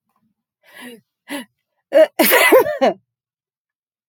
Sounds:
Sneeze